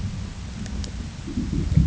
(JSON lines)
{"label": "ambient", "recorder": "HydroMoth"}